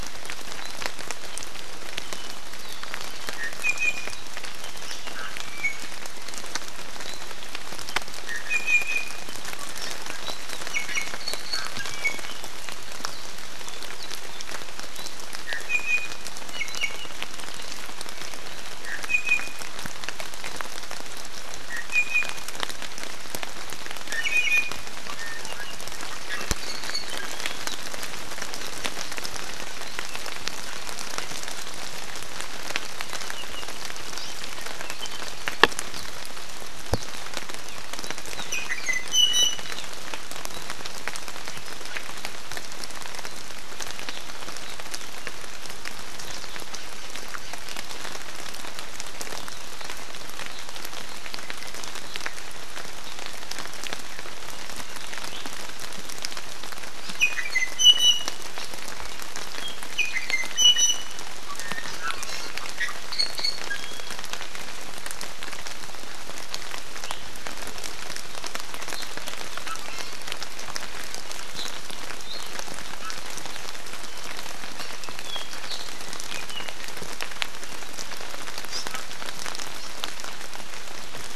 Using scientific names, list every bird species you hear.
Drepanis coccinea, Himatione sanguinea